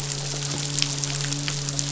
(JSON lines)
{"label": "biophony, midshipman", "recorder": "SoundTrap 500"}